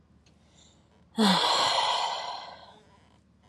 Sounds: Sigh